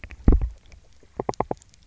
{"label": "biophony, knock", "recorder": "SoundTrap 300"}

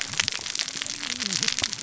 {"label": "biophony, cascading saw", "recorder": "SoundTrap 600 or HydroMoth"}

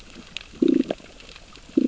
{"label": "biophony, growl", "recorder": "SoundTrap 600 or HydroMoth"}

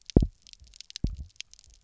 {"label": "biophony, double pulse", "recorder": "SoundTrap 300"}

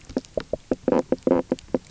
{"label": "biophony, knock croak", "recorder": "SoundTrap 300"}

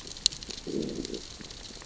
{"label": "biophony, growl", "recorder": "SoundTrap 600 or HydroMoth"}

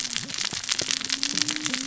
{"label": "biophony, cascading saw", "recorder": "SoundTrap 600 or HydroMoth"}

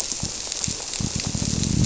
{"label": "biophony", "recorder": "SoundTrap 300"}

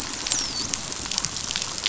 {"label": "biophony, dolphin", "recorder": "SoundTrap 500"}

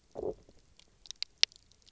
{"label": "biophony, low growl", "recorder": "SoundTrap 300"}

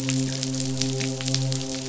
{"label": "biophony, midshipman", "recorder": "SoundTrap 500"}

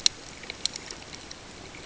{"label": "ambient", "recorder": "HydroMoth"}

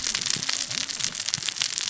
{"label": "biophony, cascading saw", "recorder": "SoundTrap 600 or HydroMoth"}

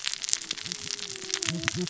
{"label": "biophony, cascading saw", "recorder": "SoundTrap 600 or HydroMoth"}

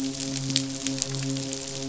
{"label": "biophony, midshipman", "recorder": "SoundTrap 500"}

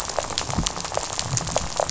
{"label": "biophony, rattle", "recorder": "SoundTrap 500"}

